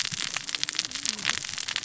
{"label": "biophony, cascading saw", "recorder": "SoundTrap 600 or HydroMoth"}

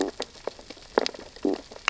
{"label": "biophony, sea urchins (Echinidae)", "recorder": "SoundTrap 600 or HydroMoth"}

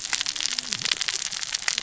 {"label": "biophony, cascading saw", "recorder": "SoundTrap 600 or HydroMoth"}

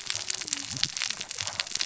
{"label": "biophony, cascading saw", "recorder": "SoundTrap 600 or HydroMoth"}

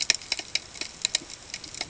{"label": "ambient", "recorder": "HydroMoth"}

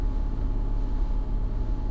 {"label": "anthrophony, boat engine", "recorder": "SoundTrap 300"}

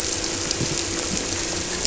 {"label": "anthrophony, boat engine", "recorder": "SoundTrap 300"}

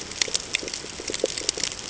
{"label": "ambient", "recorder": "HydroMoth"}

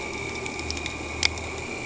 {"label": "anthrophony, boat engine", "recorder": "HydroMoth"}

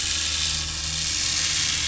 {"label": "anthrophony, boat engine", "recorder": "SoundTrap 500"}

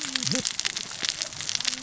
{"label": "biophony, cascading saw", "recorder": "SoundTrap 600 or HydroMoth"}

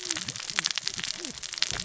{"label": "biophony, cascading saw", "recorder": "SoundTrap 600 or HydroMoth"}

